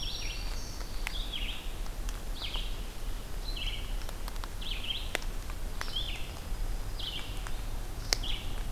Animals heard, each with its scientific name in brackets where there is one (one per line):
Pine Warbler (Setophaga pinus)
Black-throated Green Warbler (Setophaga virens)
Red-eyed Vireo (Vireo olivaceus)